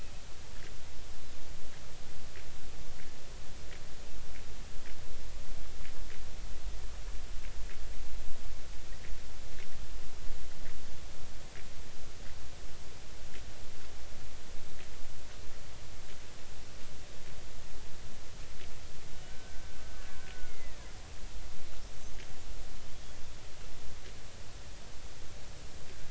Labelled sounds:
19.2	20.9	killer whale, Bigg's (transient), 1.3 to 2.2 kHz

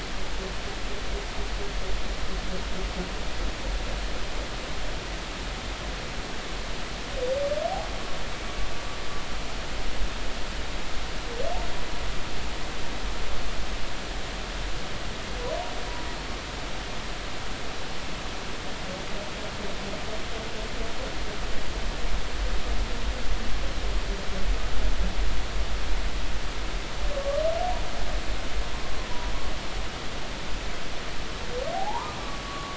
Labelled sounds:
27.1	27.4	humpback whale, 1.1 to 1.2 kHz
31.7	32.7	humpback whale, 0.80 to 1.3 kHz

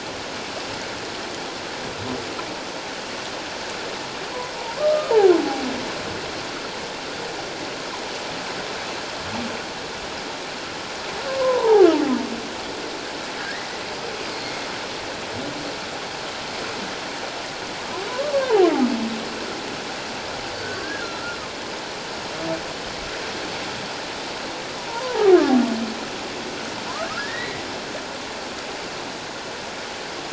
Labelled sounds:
4.8	5.1	humpback whale, 1.0 to 1.3 kHz
11.3	11.9	humpback whale, 0.78 to 1.1 kHz
13.4	13.7	humpback whale, 1.5 to 2.1 kHz
18.3	18.7	humpback whale, 0.78 to 1.2 kHz
21.0	21.4	humpback whale, 1.3 to 1.5 kHz
24.9	25.2	humpback whale, 0.78 to 1.1 kHz
27.2	27.6	humpback whale, 1.6 to 2.2 kHz

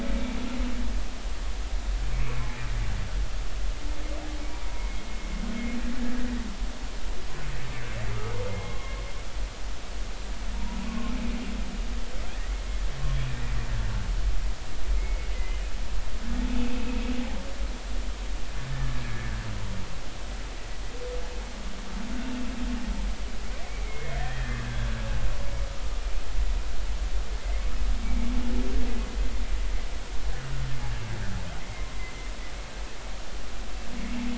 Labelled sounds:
0.1	0.4	humpback whale, 2.2 to 2.4 kHz
2.0	2.3	humpback whale, 2.1 to 2.5 kHz
4.7	5.0	humpback whale, 2.1 to 2.2 kHz
8.1	8.9	humpback whale, 0.99 to 3.4 kHz
10.5	11.1	humpback whale, 0.86 to 1.2 kHz
14.9	15.6	humpback whale, 1.9 to 2.2 kHz
16.6	17.0	humpback whale, 2.4 to 2.7 kHz
18.7	19.0	humpback whale, 1.6 to 1.9 kHz
23.5	24.9	humpback whale, 1.5 to 3.4 kHz
27.4	28.3	humpback whale, 2.0 to 2.3 kHz

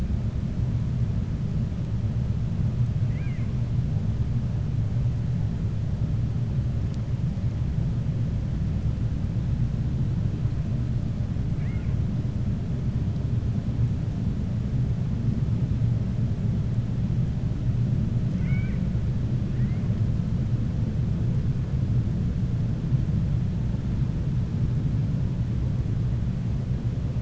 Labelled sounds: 3.0	3.5	killer whale, 1.1 to 2.9 kHz
11.5	11.9	killer whale, 1.4 to 2.9 kHz
18.3	18.8	killer whale, 1.4 to 3.7 kHz

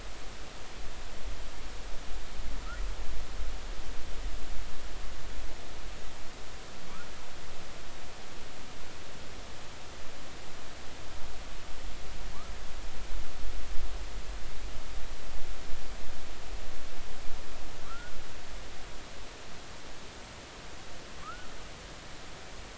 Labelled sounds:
17.8	18.1	humpback whale, 1.1 to 1.5 kHz
21.2	21.5	humpback whale, 1.1 to 1.5 kHz

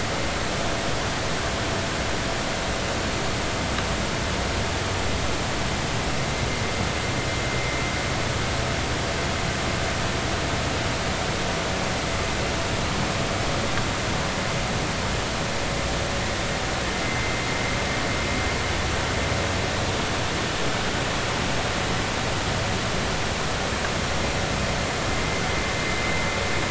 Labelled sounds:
17.0	17.3	vessel noise, 2.0 to 2.1 kHz

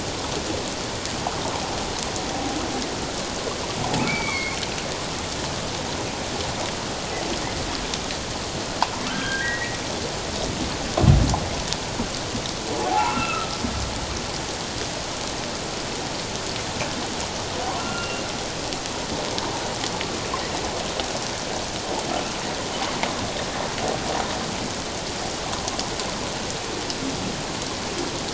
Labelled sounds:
4.1	4.6	humpback whale, 2.1 to 4.7 kHz
9.0	9.8	humpback whale, 1.2 to 3.3 kHz
12.8	13.6	humpback whale, 0.78 to 2.8 kHz
17.8	18.2	humpback whale, 1.3 to 2.8 kHz

